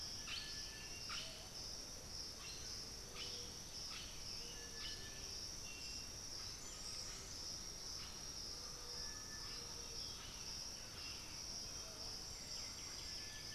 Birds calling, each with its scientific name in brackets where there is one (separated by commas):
Buff-throated Saltator (Saltator maximus), White-winged Becard (Pachyramphus polychopterus), Thrush-like Wren (Campylorhynchus turdinus), Blue-headed Parrot (Pionus menstruus), unidentified bird, Undulated Tinamou (Crypturellus undulatus), Striped Cuckoo (Tapera naevia)